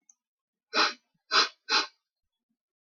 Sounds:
Sniff